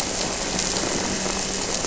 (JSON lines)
{"label": "anthrophony, boat engine", "recorder": "SoundTrap 300"}